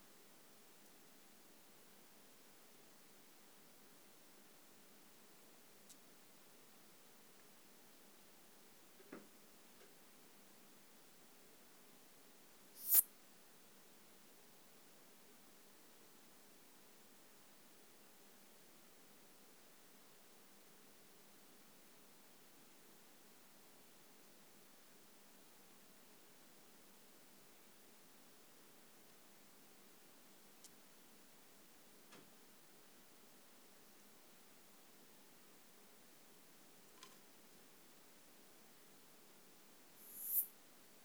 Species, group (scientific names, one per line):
Poecilimon pseudornatus
Orthoptera